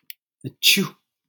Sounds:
Sneeze